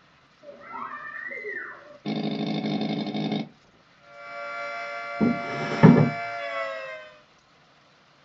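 From 3.9 to 7.3 seconds, the sound of a siren fades in and then fades out. At 0.4 seconds, someone screams. After that, at 2.0 seconds, you can hear an engine. Next, at 5.2 seconds, a wooden drawer closes loudly.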